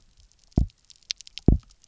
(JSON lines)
{"label": "biophony, double pulse", "recorder": "SoundTrap 300"}